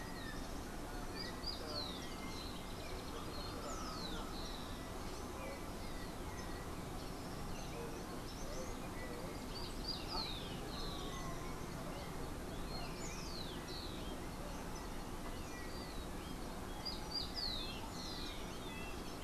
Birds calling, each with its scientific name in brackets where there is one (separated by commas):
Yellow-backed Oriole (Icterus chrysater), Rufous-collared Sparrow (Zonotrichia capensis)